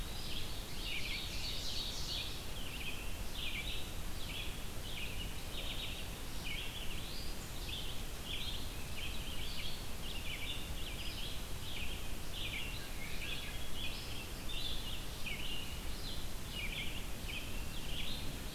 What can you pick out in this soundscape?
Red-eyed Vireo, Ovenbird